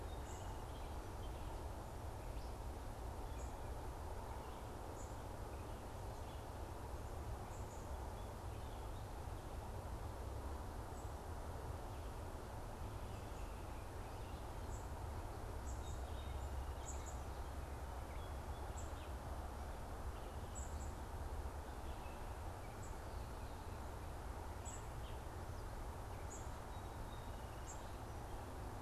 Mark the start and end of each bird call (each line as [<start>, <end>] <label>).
[14.58, 17.38] unidentified bird
[20.38, 28.08] unidentified bird